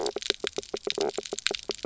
{"label": "biophony, knock croak", "recorder": "SoundTrap 300"}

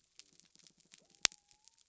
{"label": "biophony", "recorder": "SoundTrap 300"}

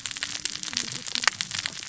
{"label": "biophony, cascading saw", "recorder": "SoundTrap 600 or HydroMoth"}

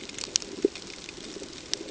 {"label": "ambient", "recorder": "HydroMoth"}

